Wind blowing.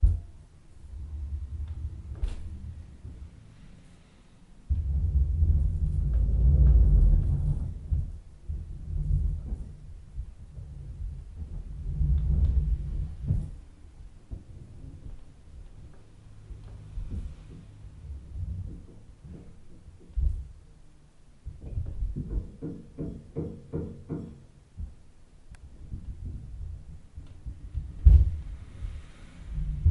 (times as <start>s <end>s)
28.0s 29.9s